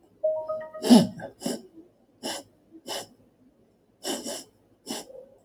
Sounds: Sneeze